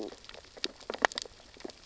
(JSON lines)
{"label": "biophony, sea urchins (Echinidae)", "recorder": "SoundTrap 600 or HydroMoth"}